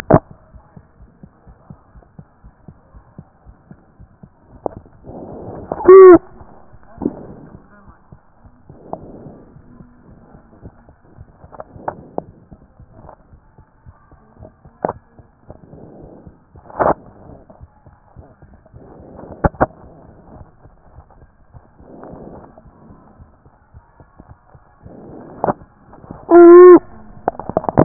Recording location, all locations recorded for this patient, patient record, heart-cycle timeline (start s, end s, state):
aortic valve (AV)
aortic valve (AV)+pulmonary valve (PV)+tricuspid valve (TV)
#Age: Child
#Sex: Male
#Height: 123.0 cm
#Weight: 32.6 kg
#Pregnancy status: False
#Murmur: Absent
#Murmur locations: nan
#Most audible location: nan
#Systolic murmur timing: nan
#Systolic murmur shape: nan
#Systolic murmur grading: nan
#Systolic murmur pitch: nan
#Systolic murmur quality: nan
#Diastolic murmur timing: nan
#Diastolic murmur shape: nan
#Diastolic murmur grading: nan
#Diastolic murmur pitch: nan
#Diastolic murmur quality: nan
#Outcome: Normal
#Campaign: 2014 screening campaign
0.00	0.52	unannotated
0.52	0.62	S1
0.62	0.76	systole
0.76	0.84	S2
0.84	1.00	diastole
1.00	1.10	S1
1.10	1.22	systole
1.22	1.32	S2
1.32	1.46	diastole
1.46	1.56	S1
1.56	1.70	systole
1.70	1.78	S2
1.78	1.94	diastole
1.94	2.04	S1
2.04	2.18	systole
2.18	2.26	S2
2.26	2.44	diastole
2.44	2.54	S1
2.54	2.68	systole
2.68	2.76	S2
2.76	2.94	diastole
2.94	3.04	S1
3.04	3.18	systole
3.18	3.26	S2
3.26	3.46	diastole
3.46	3.56	S1
3.56	3.70	systole
3.70	3.80	S2
3.80	3.98	diastole
3.98	4.08	S1
4.08	4.22	systole
4.22	4.32	S2
4.32	4.50	diastole
4.50	27.84	unannotated